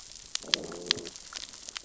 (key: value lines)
label: biophony, growl
recorder: SoundTrap 600 or HydroMoth